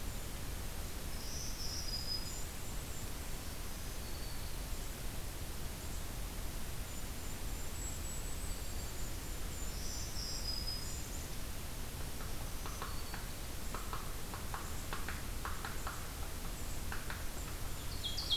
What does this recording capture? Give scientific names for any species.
Setophaga virens, Regulus satrapa, Dryobates villosus